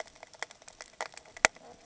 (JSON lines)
{"label": "ambient", "recorder": "HydroMoth"}